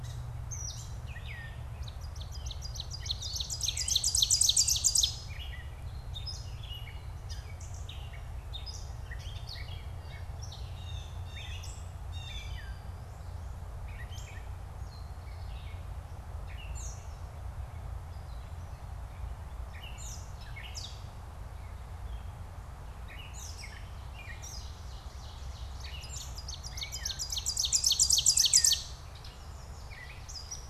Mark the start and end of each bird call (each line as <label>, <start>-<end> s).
Gray Catbird (Dumetella carolinensis), 0.0-4.0 s
Ovenbird (Seiurus aurocapilla), 1.5-5.4 s
Gray Catbird (Dumetella carolinensis), 5.2-30.7 s
Blue Jay (Cyanocitta cristata), 9.9-12.8 s
Ovenbird (Seiurus aurocapilla), 24.1-29.0 s
Yellow Warbler (Setophaga petechia), 29.1-30.7 s